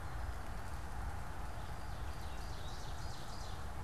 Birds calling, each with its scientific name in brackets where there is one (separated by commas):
Ovenbird (Seiurus aurocapilla)